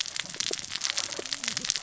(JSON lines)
{"label": "biophony, cascading saw", "recorder": "SoundTrap 600 or HydroMoth"}